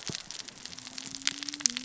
{"label": "biophony, cascading saw", "recorder": "SoundTrap 600 or HydroMoth"}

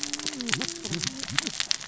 {"label": "biophony, cascading saw", "recorder": "SoundTrap 600 or HydroMoth"}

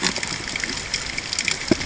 {"label": "ambient", "recorder": "HydroMoth"}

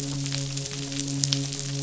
{"label": "biophony, midshipman", "recorder": "SoundTrap 500"}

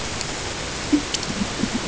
{"label": "ambient", "recorder": "HydroMoth"}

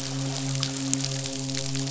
{"label": "biophony, midshipman", "recorder": "SoundTrap 500"}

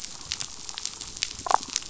{"label": "biophony, damselfish", "recorder": "SoundTrap 500"}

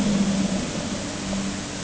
{"label": "anthrophony, boat engine", "recorder": "HydroMoth"}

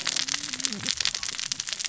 {"label": "biophony, cascading saw", "recorder": "SoundTrap 600 or HydroMoth"}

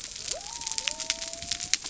{"label": "biophony", "recorder": "SoundTrap 300"}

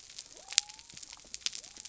{"label": "biophony", "recorder": "SoundTrap 300"}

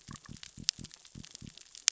{"label": "biophony", "recorder": "SoundTrap 600 or HydroMoth"}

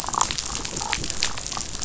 {"label": "biophony, damselfish", "recorder": "SoundTrap 500"}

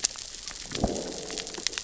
{"label": "biophony, growl", "recorder": "SoundTrap 600 or HydroMoth"}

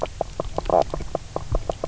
{"label": "biophony, knock croak", "recorder": "SoundTrap 300"}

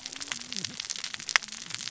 {"label": "biophony, cascading saw", "recorder": "SoundTrap 600 or HydroMoth"}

